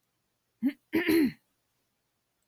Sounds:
Throat clearing